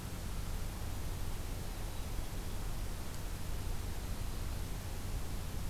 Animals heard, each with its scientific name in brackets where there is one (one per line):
Black-capped Chickadee (Poecile atricapillus)